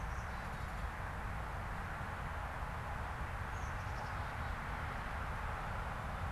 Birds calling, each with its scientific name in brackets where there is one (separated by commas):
Black-capped Chickadee (Poecile atricapillus)